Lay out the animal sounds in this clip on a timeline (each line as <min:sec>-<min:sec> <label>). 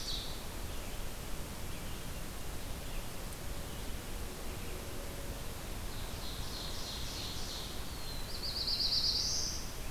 0:00.0-0:09.9 Red-eyed Vireo (Vireo olivaceus)
0:05.7-0:07.8 Ovenbird (Seiurus aurocapilla)
0:07.8-0:09.8 Black-throated Blue Warbler (Setophaga caerulescens)